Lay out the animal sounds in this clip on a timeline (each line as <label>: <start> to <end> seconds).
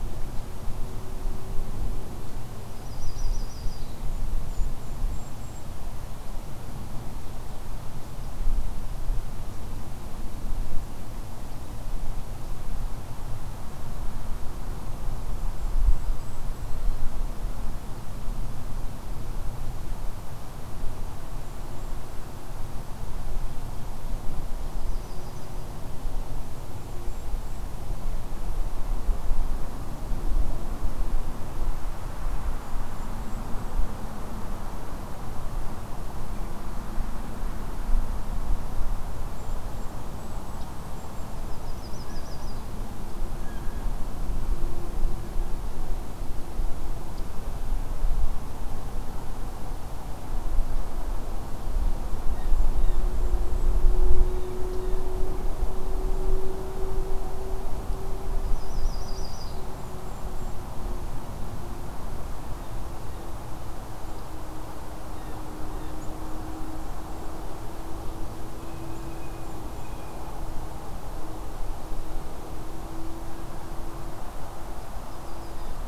Yellow-rumped Warbler (Setophaga coronata): 2.6 to 4.0 seconds
Golden-crowned Kinglet (Regulus satrapa): 3.9 to 5.7 seconds
Golden-crowned Kinglet (Regulus satrapa): 15.3 to 16.9 seconds
Golden-crowned Kinglet (Regulus satrapa): 21.0 to 22.4 seconds
Yellow-rumped Warbler (Setophaga coronata): 24.7 to 25.6 seconds
Golden-crowned Kinglet (Regulus satrapa): 26.5 to 27.8 seconds
Golden-crowned Kinglet (Regulus satrapa): 32.4 to 33.9 seconds
Golden-crowned Kinglet (Regulus satrapa): 39.2 to 41.3 seconds
Yellow-rumped Warbler (Setophaga coronata): 41.4 to 42.6 seconds
Blue Jay (Cyanocitta cristata): 42.0 to 42.5 seconds
Blue Jay (Cyanocitta cristata): 43.3 to 43.9 seconds
Blue Jay (Cyanocitta cristata): 52.3 to 53.0 seconds
Golden-crowned Kinglet (Regulus satrapa): 52.7 to 53.8 seconds
Blue Jay (Cyanocitta cristata): 54.2 to 55.1 seconds
Yellow-rumped Warbler (Setophaga coronata): 58.3 to 59.7 seconds
Golden-crowned Kinglet (Regulus satrapa): 59.6 to 60.7 seconds
Blue Jay (Cyanocitta cristata): 65.1 to 66.0 seconds
Golden-crowned Kinglet (Regulus satrapa): 68.3 to 70.0 seconds
Blue Jay (Cyanocitta cristata): 68.5 to 70.3 seconds
Yellow-rumped Warbler (Setophaga coronata): 74.6 to 75.7 seconds